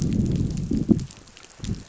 {"label": "biophony, growl", "recorder": "SoundTrap 500"}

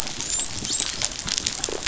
{"label": "biophony, dolphin", "recorder": "SoundTrap 500"}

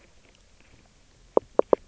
{"label": "biophony, knock croak", "recorder": "SoundTrap 300"}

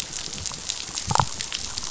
{"label": "biophony, damselfish", "recorder": "SoundTrap 500"}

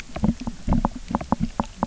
{"label": "biophony, knock", "recorder": "SoundTrap 300"}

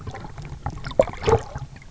{"label": "anthrophony, boat engine", "recorder": "SoundTrap 300"}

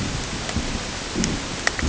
{"label": "ambient", "recorder": "HydroMoth"}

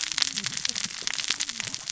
{"label": "biophony, cascading saw", "recorder": "SoundTrap 600 or HydroMoth"}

